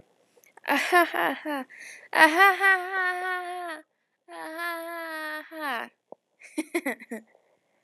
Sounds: Laughter